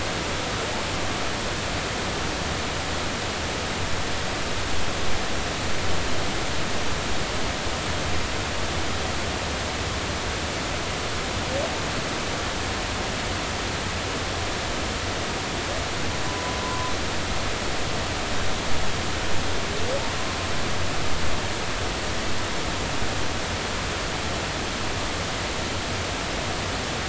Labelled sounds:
16.3	16.9	humpback whale, 0.93 to 1.1 kHz

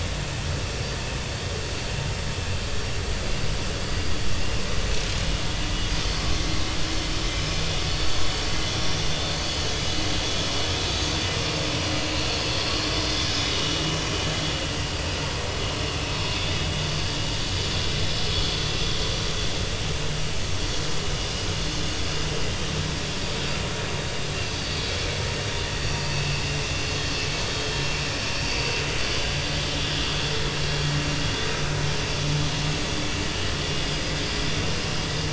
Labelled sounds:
11.4	11.6	vessel noise, 2.7 to 2.8 kHz
12.3	13.3	vessel noise, 2.6 to 3.7 kHz
19.1	19.4	vessel noise, 5.5 to 5.7 kHz
25.7	26.3	vessel noise, 2.5 to 4.7 kHz
29.8	30.0	vessel noise, 3.3 to 3.6 kHz
33.9	34.4	vessel noise, 4.8 to 5.1 kHz

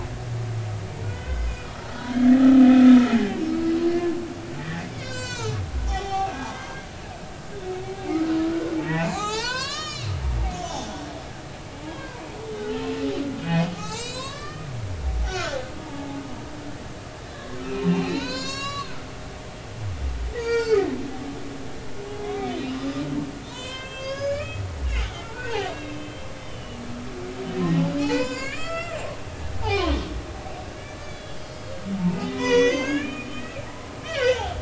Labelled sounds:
1.0	1.7	humpback whale, 1.4 to 5.2 kHz
2.1	3.0	humpback whale, 1.2 to 2.6 kHz
4.6	6.9	humpback whale, 0.80 to 8.0 kHz
8.1	10.1	humpback whale, 0.80 to 7.5 kHz
10.5	12.2	humpback whale, 0.80 to 6.3 kHz
12.6	12.9	humpback whale, 0.80 to 1.6 kHz
13.4	14.7	humpback whale, 0.96 to 8.0 kHz
15.2	16.2	humpback whale, 0.80 to 7.2 kHz
17.6	18.9	humpback whale, 0.83 to 8.0 kHz
20.4	20.9	humpback whale, 0.86 to 7.5 kHz
22.1	22.7	humpback whale, 2.2 to 3.6 kHz
23.4	26.8	humpback whale, 0.93 to 7.5 kHz
28.0	29.0	humpback whale, 0.80 to 7.6 kHz
29.7	30.0	humpback whale, 0.93 to 4.3 kHz
30.8	31.8	humpback whale, 1.6 to 5.0 kHz
32.1	34.6	humpback whale, 0.86 to 6.9 kHz

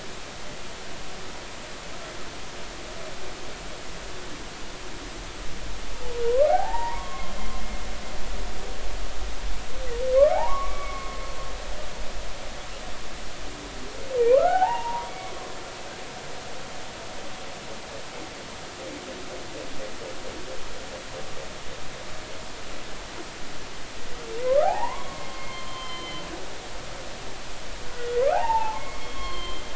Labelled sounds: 6.2	7.3	humpback whale, 0.80 to 2.0 kHz
10.3	12.2	humpback whale, 0.80 to 2.3 kHz
14.3	15.3	humpback whale, 0.80 to 2.3 kHz
24.4	26.3	humpback whale, 0.80 to 4.2 kHz
27.8	29.6	humpback whale, 0.80 to 4.4 kHz

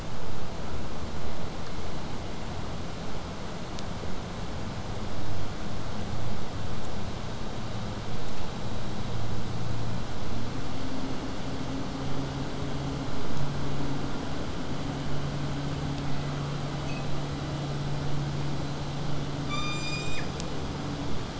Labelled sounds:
10.0	15.0	vessel noise, 0 to 8.0 kHz

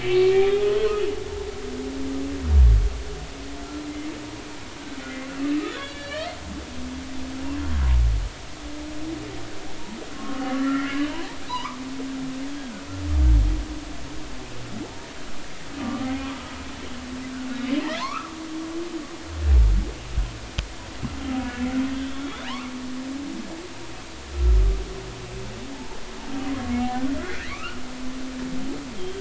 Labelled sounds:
0.0	0.7	humpback whale, 2.2 to 3.4 kHz
5.7	6.4	humpback whale, 1.6 to 3.6 kHz
10.2	11.0	humpback whale, 1.0 to 2.2 kHz
11.5	11.8	humpback whale, 0.86 to 1.3 kHz
15.8	16.1	humpback whale, 1.1 to 1.3 kHz
18.0	18.3	humpback whale, 0.83 to 1.5 kHz
22.5	22.7	humpback whale, 0.80 to 1.4 kHz
25.7	26.0	humpback whale, 0.80 to 0.99 kHz
27.2	27.8	humpback whale, 1.0 to 3.0 kHz

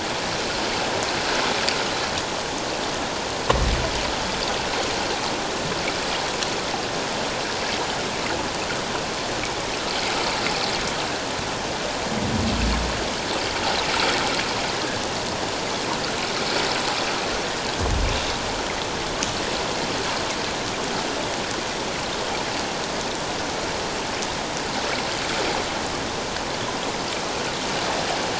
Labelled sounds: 14.7	15.0	water noise, 1.6 to 1.8 kHz

